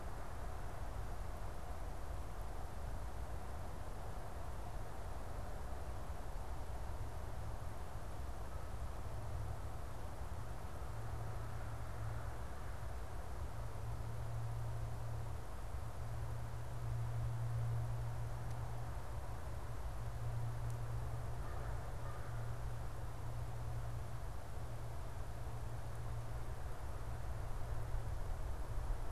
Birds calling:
American Crow (Corvus brachyrhynchos)

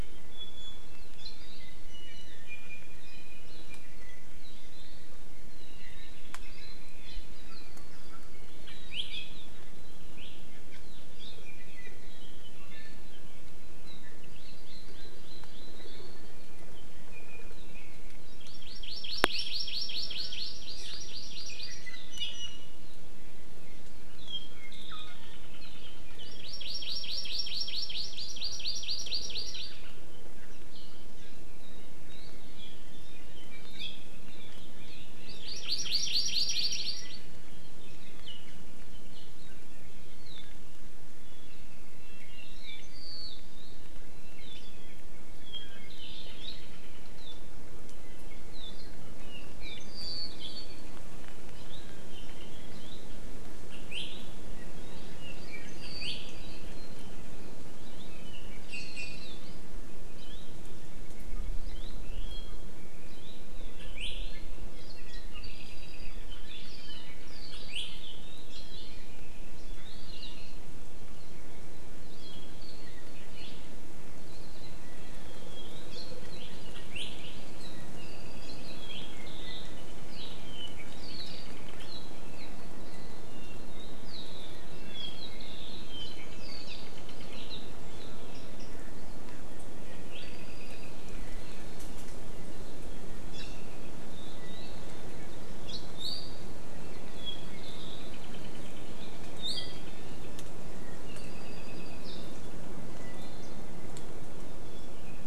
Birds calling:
Hawaii Amakihi (Chlorodrepanis virens), Iiwi (Drepanis coccinea), Apapane (Himatione sanguinea)

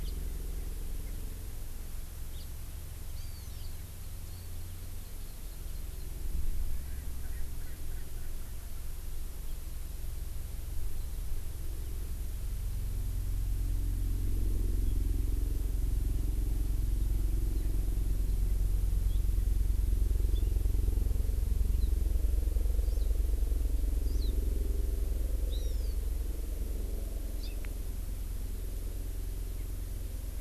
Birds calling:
Hawaii Amakihi (Chlorodrepanis virens), House Finch (Haemorhous mexicanus), Erckel's Francolin (Pternistis erckelii)

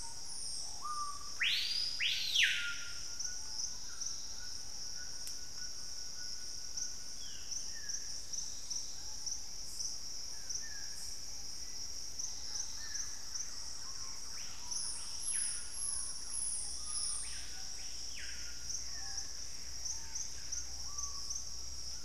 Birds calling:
White-throated Toucan (Ramphastos tucanus), Ruddy Pigeon (Patagioenas subvinacea), Gray Antbird (Cercomacra cinerascens), Dusky-throated Antshrike (Thamnomanes ardesiacus), Screaming Piha (Lipaugus vociferans), Black-faced Antthrush (Formicarius analis), Thrush-like Wren (Campylorhynchus turdinus)

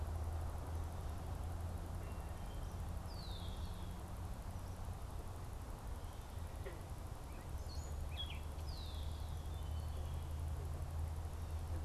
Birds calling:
Gray Catbird (Dumetella carolinensis), Wood Thrush (Hylocichla mustelina), Red-winged Blackbird (Agelaius phoeniceus)

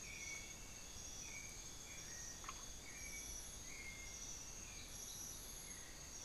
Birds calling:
unidentified bird, White-necked Thrush (Turdus albicollis)

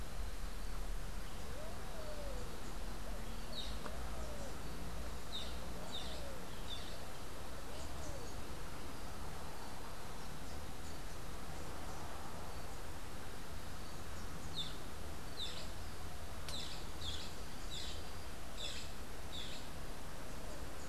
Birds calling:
Red-billed Pigeon (Patagioenas flavirostris), Boat-billed Flycatcher (Megarynchus pitangua)

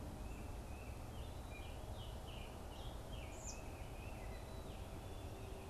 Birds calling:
Tufted Titmouse (Baeolophus bicolor), Scarlet Tanager (Piranga olivacea)

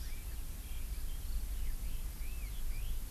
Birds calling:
Hawaii Amakihi (Chlorodrepanis virens), Red-billed Leiothrix (Leiothrix lutea)

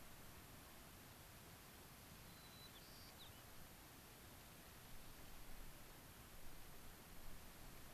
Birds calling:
White-crowned Sparrow (Zonotrichia leucophrys)

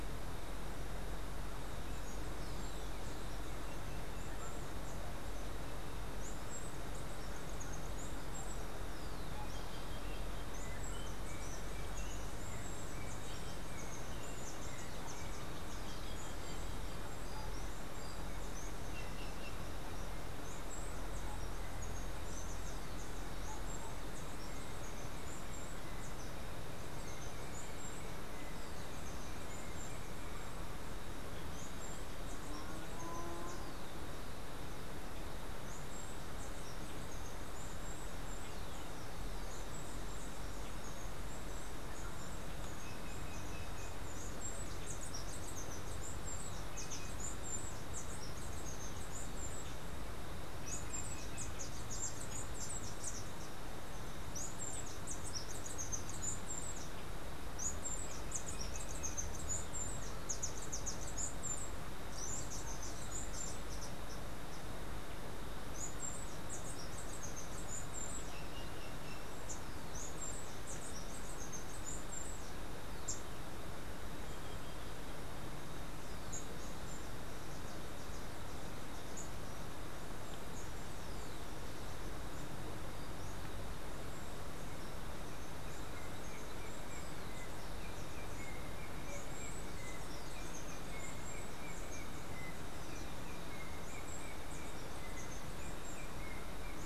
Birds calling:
Yellow-backed Oriole (Icterus chrysater), Steely-vented Hummingbird (Saucerottia saucerottei), Green Jay (Cyanocorax yncas)

